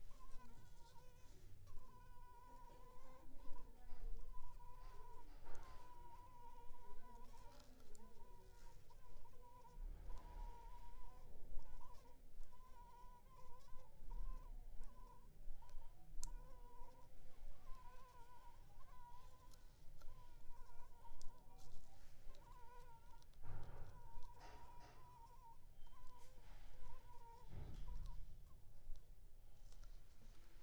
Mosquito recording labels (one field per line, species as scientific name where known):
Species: Anopheles funestus s.s.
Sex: female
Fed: unfed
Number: one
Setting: cup